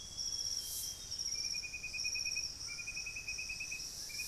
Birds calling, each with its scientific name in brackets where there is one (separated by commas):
White-throated Toucan (Ramphastos tucanus), Plain-winged Antshrike (Thamnophilus schistaceus), Amazonian Grosbeak (Cyanoloxia rothschildii)